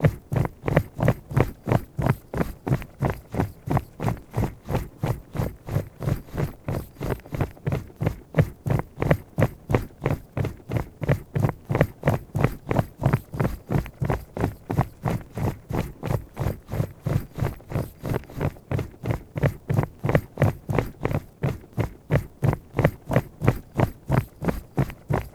Is the person moving?
yes